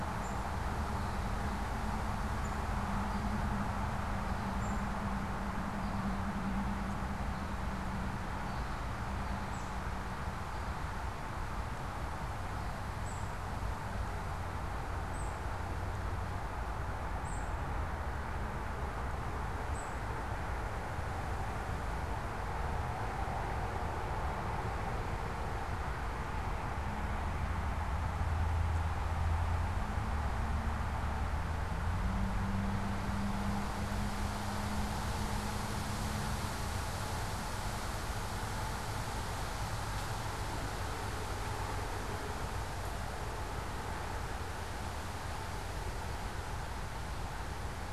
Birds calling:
unidentified bird

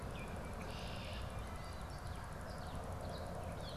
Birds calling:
Gray Catbird (Dumetella carolinensis)
Red-winged Blackbird (Agelaius phoeniceus)

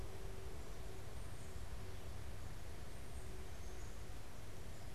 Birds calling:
Tufted Titmouse (Baeolophus bicolor)
Black-capped Chickadee (Poecile atricapillus)

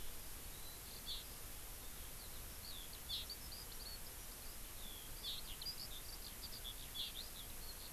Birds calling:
Eurasian Skylark (Alauda arvensis)

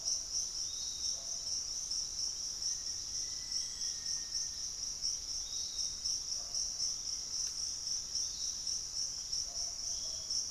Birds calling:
Black-faced Antthrush (Formicarius analis)
unidentified bird
Piratic Flycatcher (Legatus leucophaius)

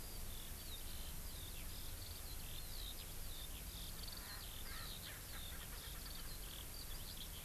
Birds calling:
Eurasian Skylark (Alauda arvensis)
Erckel's Francolin (Pternistis erckelii)

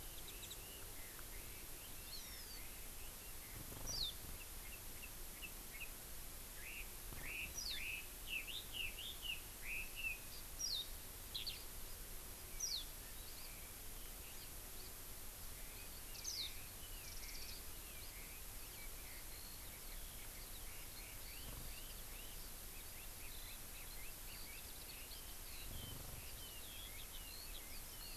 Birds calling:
Hawaii Amakihi (Chlorodrepanis virens)
Warbling White-eye (Zosterops japonicus)
Red-billed Leiothrix (Leiothrix lutea)
Eurasian Skylark (Alauda arvensis)

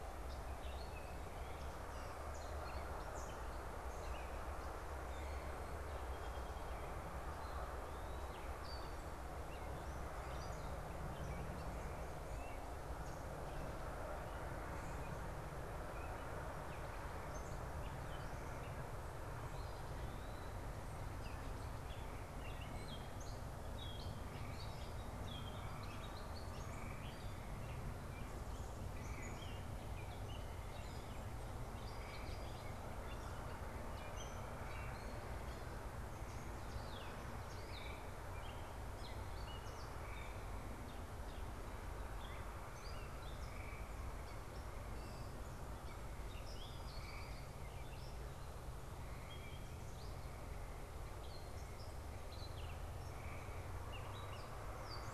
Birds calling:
Eastern Wood-Pewee (Contopus virens)
Gray Catbird (Dumetella carolinensis)
Song Sparrow (Melospiza melodia)

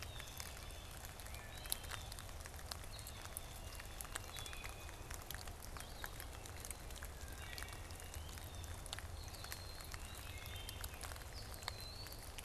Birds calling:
Blue-headed Vireo (Vireo solitarius)
Wood Thrush (Hylocichla mustelina)
Blue Jay (Cyanocitta cristata)

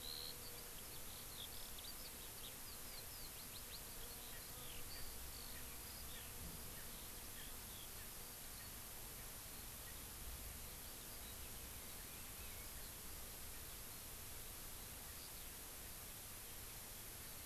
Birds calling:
Erckel's Francolin (Pternistis erckelii)
Eurasian Skylark (Alauda arvensis)

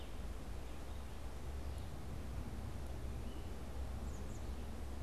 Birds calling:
American Robin (Turdus migratorius)
Red-eyed Vireo (Vireo olivaceus)

